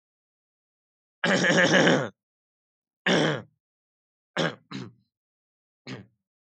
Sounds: Throat clearing